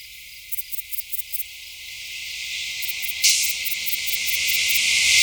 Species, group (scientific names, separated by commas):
Sepiana sepium, Orthoptera